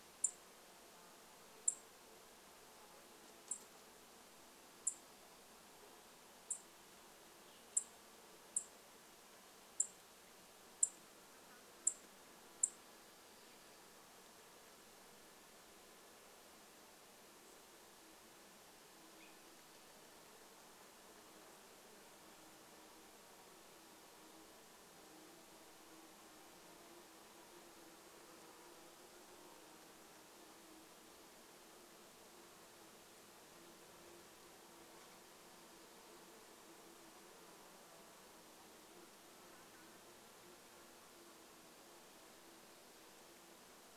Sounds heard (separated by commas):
unidentified sound, insect buzz, Dark-eyed Junco call